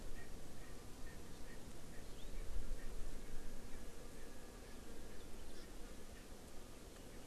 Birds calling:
Erckel's Francolin (Pternistis erckelii)

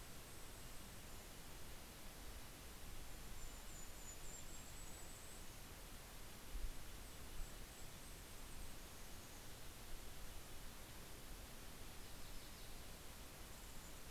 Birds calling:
Yellow-rumped Warbler (Setophaga coronata), Golden-crowned Kinglet (Regulus satrapa), Red-breasted Nuthatch (Sitta canadensis)

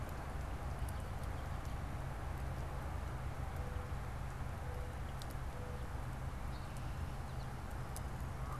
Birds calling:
American Goldfinch (Spinus tristis)

